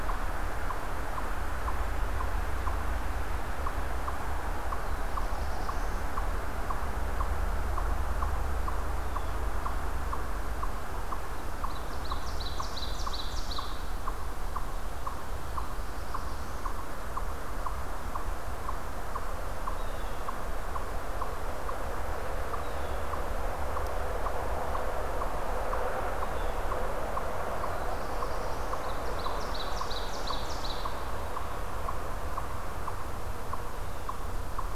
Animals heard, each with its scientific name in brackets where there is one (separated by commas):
Black-throated Blue Warbler (Setophaga caerulescens), Eastern Chipmunk (Tamias striatus), Ovenbird (Seiurus aurocapilla)